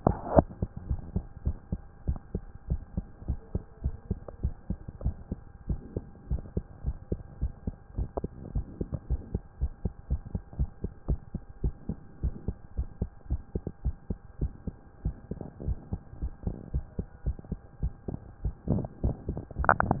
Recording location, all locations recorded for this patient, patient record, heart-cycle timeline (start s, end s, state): mitral valve (MV)
aortic valve (AV)+pulmonary valve (PV)+tricuspid valve (TV)+tricuspid valve (TV)+mitral valve (MV)
#Age: Child
#Sex: Female
#Height: 135.0 cm
#Weight: 33.5 kg
#Pregnancy status: False
#Murmur: Absent
#Murmur locations: nan
#Most audible location: nan
#Systolic murmur timing: nan
#Systolic murmur shape: nan
#Systolic murmur grading: nan
#Systolic murmur pitch: nan
#Systolic murmur quality: nan
#Diastolic murmur timing: nan
#Diastolic murmur shape: nan
#Diastolic murmur grading: nan
#Diastolic murmur pitch: nan
#Diastolic murmur quality: nan
#Outcome: Normal
#Campaign: 2014 screening campaign
0.00	0.88	unannotated
0.88	1.00	S1
1.00	1.14	systole
1.14	1.24	S2
1.24	1.44	diastole
1.44	1.56	S1
1.56	1.70	systole
1.70	1.80	S2
1.80	2.06	diastole
2.06	2.18	S1
2.18	2.34	systole
2.34	2.42	S2
2.42	2.70	diastole
2.70	2.80	S1
2.80	2.96	systole
2.96	3.06	S2
3.06	3.28	diastole
3.28	3.40	S1
3.40	3.54	systole
3.54	3.62	S2
3.62	3.84	diastole
3.84	3.96	S1
3.96	4.10	systole
4.10	4.18	S2
4.18	4.42	diastole
4.42	4.54	S1
4.54	4.68	systole
4.68	4.78	S2
4.78	5.04	diastole
5.04	5.16	S1
5.16	5.30	systole
5.30	5.40	S2
5.40	5.68	diastole
5.68	5.80	S1
5.80	5.94	systole
5.94	6.04	S2
6.04	6.30	diastole
6.30	6.42	S1
6.42	6.56	systole
6.56	6.64	S2
6.64	6.84	diastole
6.84	6.96	S1
6.96	7.10	systole
7.10	7.20	S2
7.20	7.40	diastole
7.40	7.52	S1
7.52	7.66	systole
7.66	7.76	S2
7.76	7.96	diastole
7.96	8.08	S1
8.08	8.22	systole
8.22	8.30	S2
8.30	8.54	diastole
8.54	8.66	S1
8.66	8.80	systole
8.80	8.88	S2
8.88	9.10	diastole
9.10	9.20	S1
9.20	9.32	systole
9.32	9.42	S2
9.42	9.60	diastole
9.60	9.72	S1
9.72	9.84	systole
9.84	9.92	S2
9.92	10.10	diastole
10.10	10.22	S1
10.22	10.34	systole
10.34	10.42	S2
10.42	10.58	diastole
10.58	10.70	S1
10.70	10.82	systole
10.82	10.92	S2
10.92	11.08	diastole
11.08	11.20	S1
11.20	11.34	systole
11.34	11.42	S2
11.42	11.62	diastole
11.62	11.74	S1
11.74	11.88	systole
11.88	11.98	S2
11.98	12.22	diastole
12.22	12.34	S1
12.34	12.46	systole
12.46	12.56	S2
12.56	12.76	diastole
12.76	12.88	S1
12.88	13.00	systole
13.00	13.10	S2
13.10	13.30	diastole
13.30	13.40	S1
13.40	13.54	systole
13.54	13.62	S2
13.62	13.84	diastole
13.84	13.96	S1
13.96	14.08	systole
14.08	14.18	S2
14.18	14.40	diastole
14.40	14.52	S1
14.52	14.66	systole
14.66	14.76	S2
14.76	15.04	diastole
15.04	15.16	S1
15.16	15.30	systole
15.30	15.38	S2
15.38	15.64	diastole
15.64	15.78	S1
15.78	15.92	systole
15.92	16.00	S2
16.00	16.22	diastole
16.22	16.32	S1
16.32	16.46	systole
16.46	16.56	S2
16.56	16.74	diastole
16.74	16.84	S1
16.84	16.98	systole
16.98	17.06	S2
17.06	17.26	diastole
17.26	17.36	S1
17.36	17.50	systole
17.50	17.60	S2
17.60	17.82	diastole
17.82	17.92	S1
17.92	18.08	systole
18.08	18.18	S2
18.18	18.44	diastole
18.44	20.00	unannotated